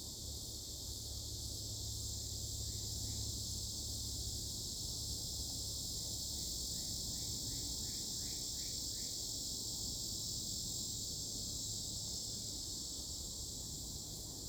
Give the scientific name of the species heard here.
Neocicada hieroglyphica